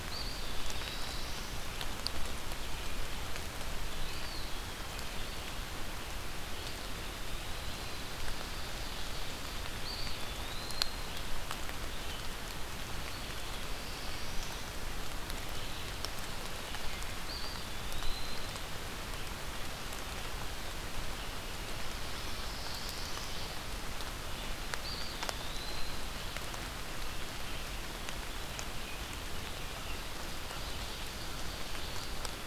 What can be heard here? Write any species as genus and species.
Contopus virens, Setophaga caerulescens, Seiurus aurocapilla